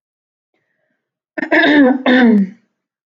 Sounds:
Throat clearing